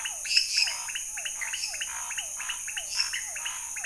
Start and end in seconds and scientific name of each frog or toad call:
0.0	3.8	Leptodactylus podicipinus
0.0	3.8	Physalaemus cuvieri
0.0	3.8	Scinax fuscovarius
0.2	3.8	Dendropsophus minutus